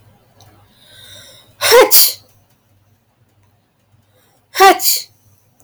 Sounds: Sneeze